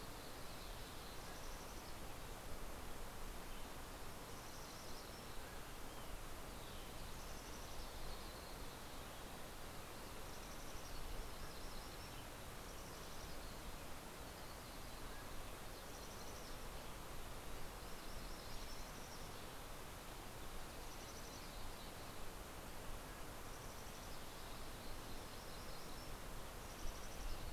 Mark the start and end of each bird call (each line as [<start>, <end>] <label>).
[0.00, 27.03] Mountain Chickadee (Poecile gambeli)
[0.93, 2.03] Mountain Quail (Oreortyx pictus)
[5.03, 6.43] Mountain Quail (Oreortyx pictus)
[5.13, 8.13] Olive-sided Flycatcher (Contopus cooperi)
[10.63, 13.03] Hermit Warbler (Setophaga occidentalis)
[14.33, 15.73] Mountain Quail (Oreortyx pictus)
[17.43, 19.73] Yellow-rumped Warbler (Setophaga coronata)
[22.43, 23.83] Mountain Quail (Oreortyx pictus)
[23.53, 27.43] Yellow-rumped Warbler (Setophaga coronata)